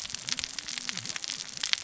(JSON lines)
{"label": "biophony, cascading saw", "recorder": "SoundTrap 600 or HydroMoth"}